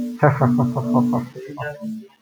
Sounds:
Laughter